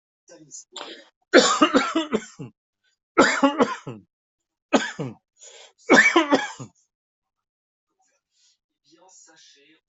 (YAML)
expert_labels:
- quality: good
  cough_type: dry
  dyspnea: false
  wheezing: false
  stridor: false
  choking: false
  congestion: false
  nothing: true
  diagnosis: upper respiratory tract infection
  severity: mild
age: 68
gender: male
respiratory_condition: false
fever_muscle_pain: false
status: COVID-19